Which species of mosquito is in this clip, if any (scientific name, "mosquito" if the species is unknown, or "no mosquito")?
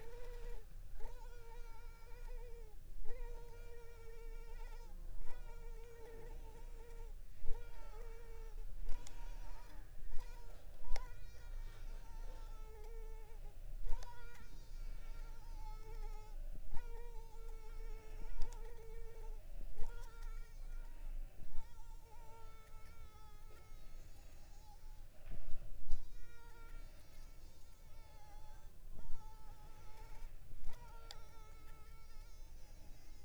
Culex pipiens complex